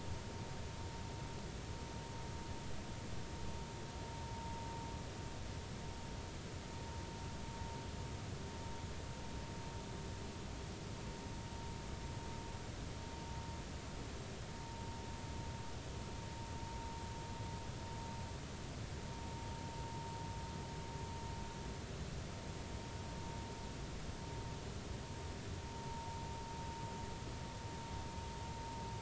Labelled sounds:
14.6	14.8	vessel noise, 0.86 to 0.99 kHz
25.7	26.2	vessel noise, 0.86 to 0.96 kHz

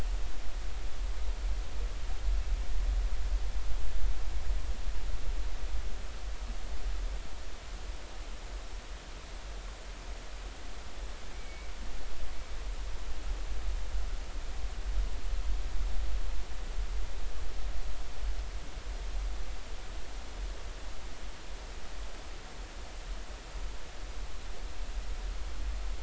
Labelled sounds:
11.3	11.7	killer whale, 2.0 to 2.4 kHz

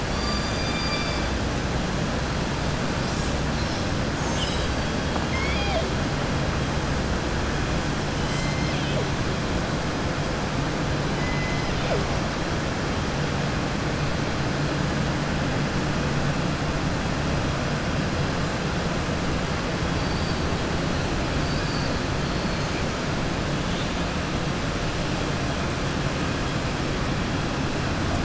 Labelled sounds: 0.0	1.3	killer whale, southern resident, 2.3 to 5.7 kHz
5.2	5.9	killer whale, southern resident, 0.62 to 5.6 kHz
11.1	11.9	killer whale, southern resident, 2.0 to 5.0 kHz
21.4	22.0	killer whale, southern resident, 3.9 to 5.9 kHz

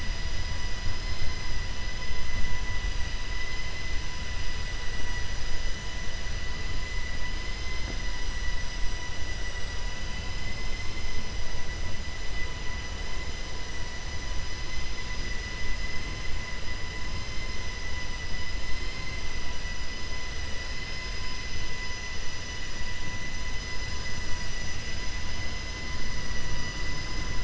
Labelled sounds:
10.6	11.0	vessel noise, 1.1 to 3.6 kHz

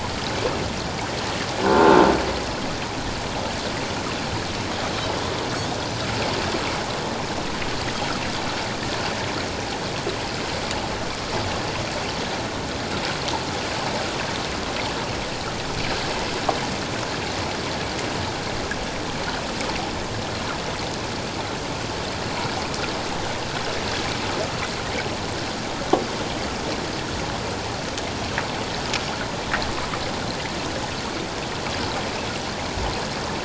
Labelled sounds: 1.6	2.0	Pacific white-sided dolphin, 1.3 to 1.7 kHz
1.7	2.0	croaking sound likely from a nearby submerged object, 0.84 to 1.1 kHz

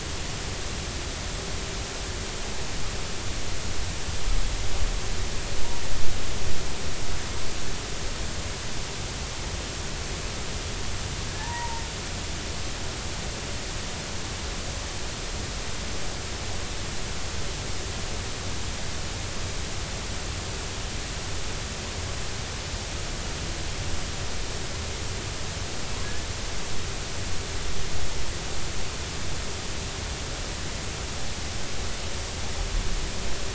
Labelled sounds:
11.4	11.8	humpback whale, 0.83 to 1.0 kHz

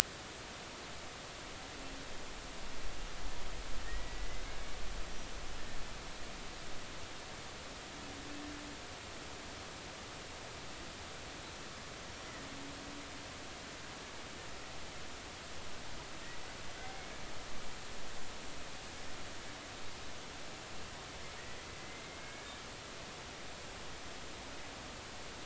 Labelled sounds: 3.8	4.4	killer whale, Bigg's (transient), 1.8 to 2.1 kHz
16.8	17.2	killer whale, Bigg's (transient), 2.0 to 2.3 kHz
21.8	22.5	killer whale, Bigg's (transient), 1.6 to 2.3 kHz

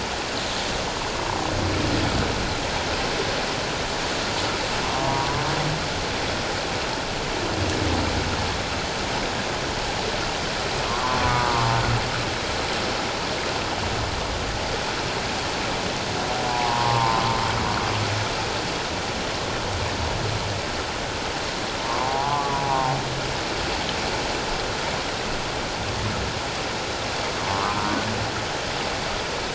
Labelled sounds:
5.0	5.3	humpback whale, 0.91 to 1.0 kHz
11.0	11.7	humpback whale, 0.84 to 1.2 kHz
16.5	17.2	humpback whale, 0.81 to 1.2 kHz
21.8	23.0	humpback whale, 0.78 to 1.2 kHz
27.4	27.8	humpback whale, 1.0 to 1.3 kHz

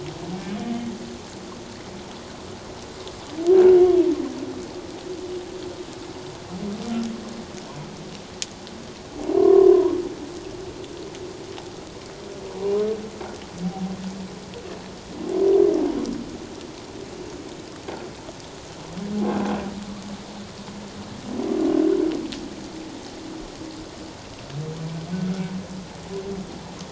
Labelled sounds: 9.4	9.9	humpback whale, 0.94 to 1.2 kHz

